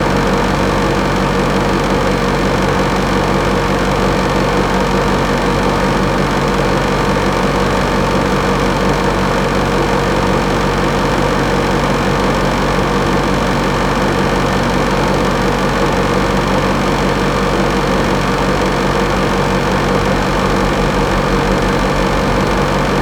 Does the noise stay steady throughout the recording?
yes